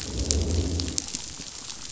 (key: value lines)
label: biophony, growl
recorder: SoundTrap 500